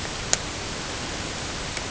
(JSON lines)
{"label": "ambient", "recorder": "HydroMoth"}